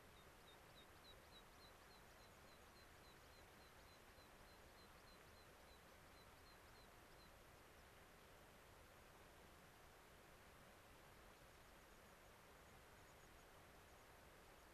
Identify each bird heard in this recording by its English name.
American Pipit